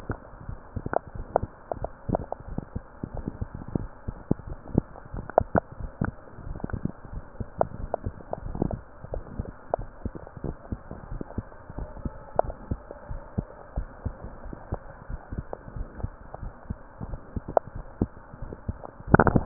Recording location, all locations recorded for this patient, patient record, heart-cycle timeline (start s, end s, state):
mitral valve (MV)
aortic valve (AV)+pulmonary valve (PV)+tricuspid valve (TV)+mitral valve (MV)
#Age: Child
#Sex: Male
#Height: nan
#Weight: nan
#Pregnancy status: False
#Murmur: Present
#Murmur locations: tricuspid valve (TV)
#Most audible location: tricuspid valve (TV)
#Systolic murmur timing: Early-systolic
#Systolic murmur shape: Decrescendo
#Systolic murmur grading: I/VI
#Systolic murmur pitch: Low
#Systolic murmur quality: Blowing
#Diastolic murmur timing: nan
#Diastolic murmur shape: nan
#Diastolic murmur grading: nan
#Diastolic murmur pitch: nan
#Diastolic murmur quality: nan
#Outcome: Abnormal
#Campaign: 2015 screening campaign
0.00	9.90	unannotated
9.90	10.06	systole
10.06	10.14	S2
10.14	10.44	diastole
10.44	10.56	S1
10.56	10.69	systole
10.69	10.80	S2
10.80	11.09	diastole
11.09	11.22	S1
11.22	11.36	systole
11.36	11.46	S2
11.46	11.76	diastole
11.76	11.90	S1
11.90	12.02	systole
12.02	12.14	S2
12.14	12.43	diastole
12.43	12.56	S1
12.56	12.68	systole
12.68	12.80	S2
12.80	13.07	diastole
13.07	13.22	S1
13.22	13.34	systole
13.34	13.46	S2
13.46	13.72	diastole
13.72	13.88	S1
13.88	14.02	systole
14.02	14.16	S2
14.16	14.45	diastole
14.45	14.56	S1
14.56	14.70	systole
14.70	14.80	S2
14.80	15.07	diastole
15.07	15.20	S1
15.20	15.32	systole
15.32	15.46	S2
15.46	15.76	diastole
15.76	15.88	S1
15.88	16.02	systole
16.02	16.14	S2
16.14	16.42	diastole
16.42	16.54	S1
16.54	16.68	systole
16.68	16.80	S2
16.80	17.04	diastole
17.04	17.18	S1
17.18	17.36	systole
17.36	17.44	S2
17.44	17.73	diastole
17.73	17.88	S1
17.88	18.00	systole
18.00	18.12	S2
18.12	18.42	diastole
18.42	19.46	unannotated